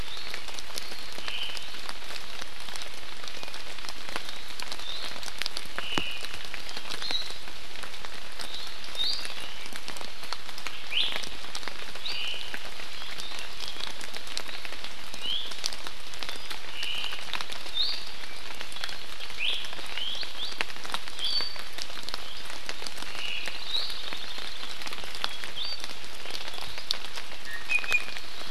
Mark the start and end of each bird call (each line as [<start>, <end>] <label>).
[0.00, 0.40] Iiwi (Drepanis coccinea)
[1.20, 1.70] Omao (Myadestes obscurus)
[4.80, 5.20] Iiwi (Drepanis coccinea)
[5.80, 6.20] Omao (Myadestes obscurus)
[7.00, 7.30] Hawaii Amakihi (Chlorodrepanis virens)
[8.90, 9.20] Iiwi (Drepanis coccinea)
[10.90, 11.10] Iiwi (Drepanis coccinea)
[12.00, 12.20] Iiwi (Drepanis coccinea)
[12.00, 12.60] Omao (Myadestes obscurus)
[15.10, 15.50] Iiwi (Drepanis coccinea)
[16.70, 17.20] Omao (Myadestes obscurus)
[17.70, 18.00] Iiwi (Drepanis coccinea)
[19.40, 19.60] Iiwi (Drepanis coccinea)
[19.90, 20.70] Iiwi (Drepanis coccinea)
[21.10, 21.70] Iiwi (Drepanis coccinea)
[23.10, 23.60] Omao (Myadestes obscurus)
[23.30, 24.70] Hawaii Creeper (Loxops mana)
[23.70, 23.90] Iiwi (Drepanis coccinea)
[25.60, 25.80] Iiwi (Drepanis coccinea)
[27.50, 28.20] Iiwi (Drepanis coccinea)